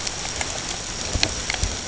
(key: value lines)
label: ambient
recorder: HydroMoth